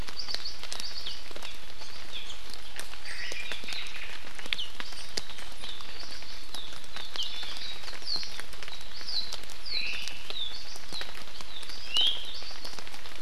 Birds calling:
Hawaii Amakihi (Chlorodrepanis virens), Iiwi (Drepanis coccinea), Omao (Myadestes obscurus)

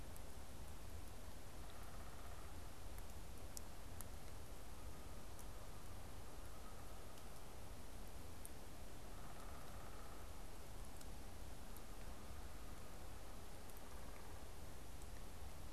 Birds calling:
Downy Woodpecker (Dryobates pubescens), Canada Goose (Branta canadensis)

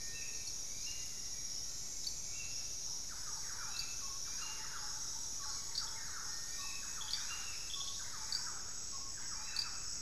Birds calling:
Amazonian Motmot (Momotus momota), Thrush-like Wren (Campylorhynchus turdinus), Hauxwell's Thrush (Turdus hauxwelli)

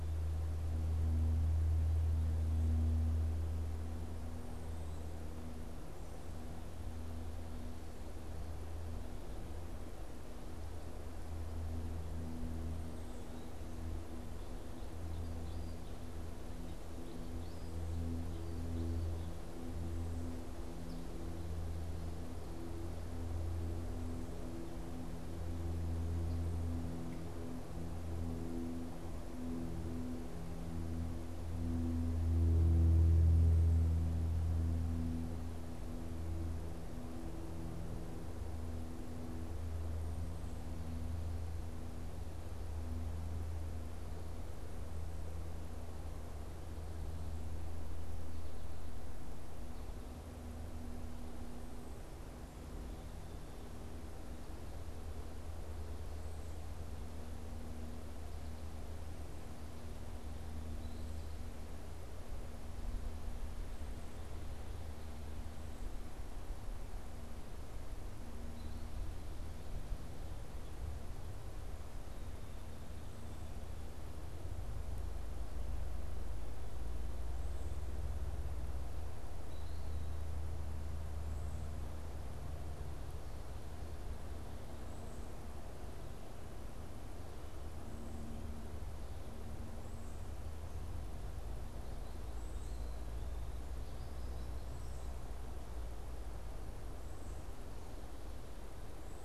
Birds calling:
unidentified bird

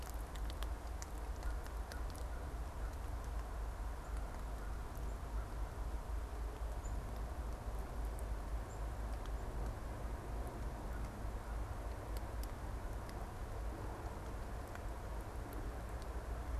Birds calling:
American Crow (Corvus brachyrhynchos), unidentified bird

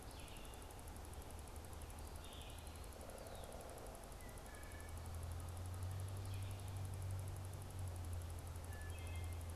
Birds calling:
Wood Thrush (Hylocichla mustelina), Pileated Woodpecker (Dryocopus pileatus), Red-eyed Vireo (Vireo olivaceus)

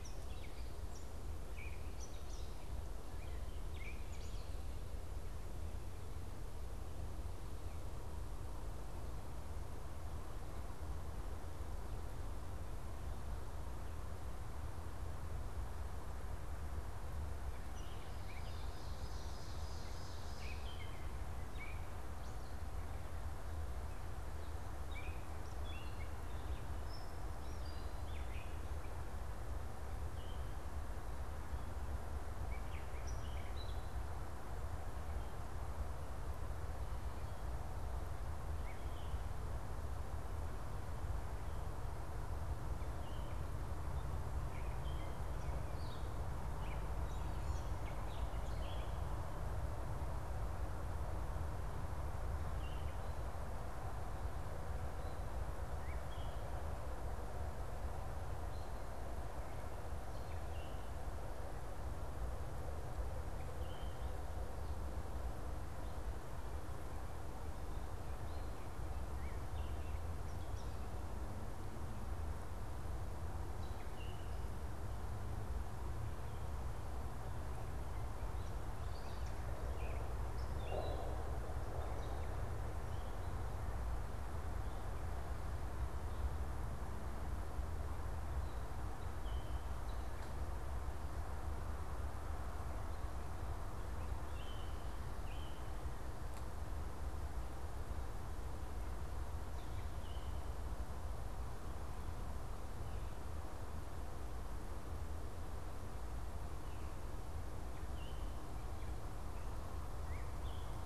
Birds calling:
Gray Catbird (Dumetella carolinensis), Ovenbird (Seiurus aurocapilla), unidentified bird

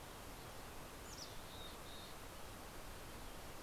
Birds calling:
Mountain Chickadee (Poecile gambeli), American Robin (Turdus migratorius)

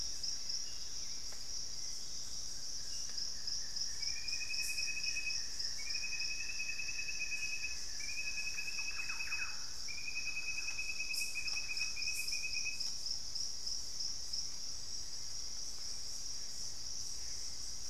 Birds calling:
Gray Antbird (Cercomacra cinerascens), Buff-throated Woodcreeper (Xiphorhynchus guttatus), Thrush-like Wren (Campylorhynchus turdinus), Hauxwell's Thrush (Turdus hauxwelli)

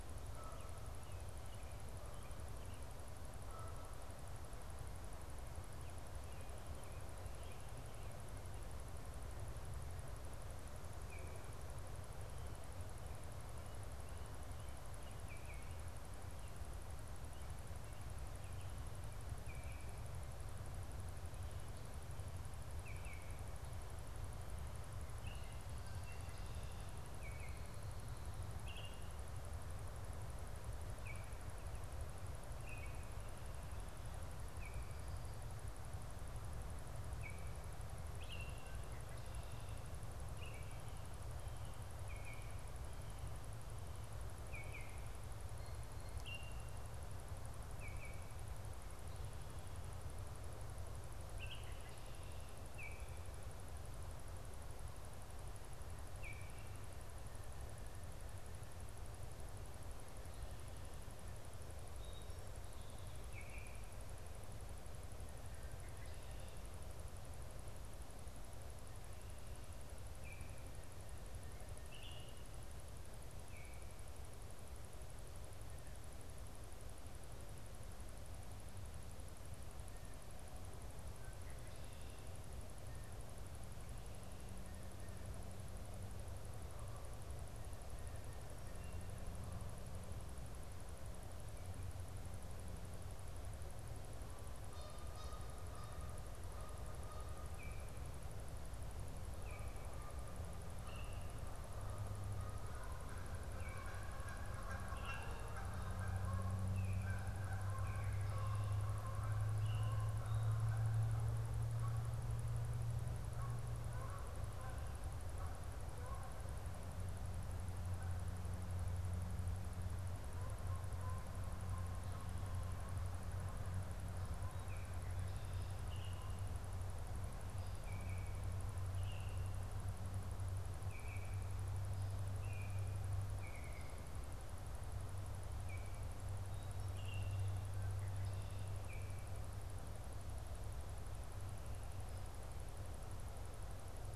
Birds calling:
Canada Goose (Branta canadensis), Baltimore Oriole (Icterus galbula)

